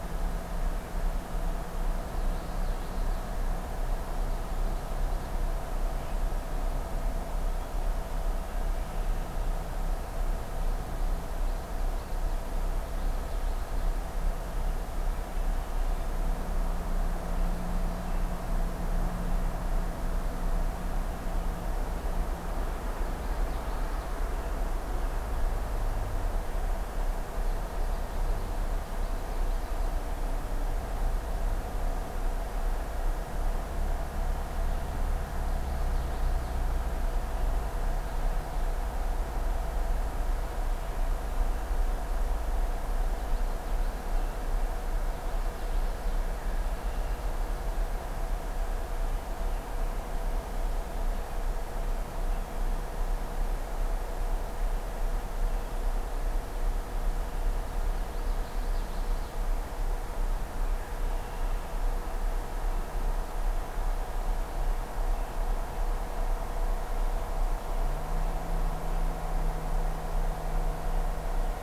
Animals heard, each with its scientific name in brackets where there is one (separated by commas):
Red-winged Blackbird (Agelaius phoeniceus), Common Yellowthroat (Geothlypis trichas)